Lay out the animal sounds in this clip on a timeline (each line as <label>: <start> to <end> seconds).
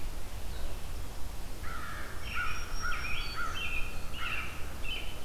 American Crow (Corvus brachyrhynchos): 1.5 to 4.9 seconds
Black-throated Green Warbler (Setophaga virens): 2.0 to 3.7 seconds
American Robin (Turdus migratorius): 2.1 to 5.2 seconds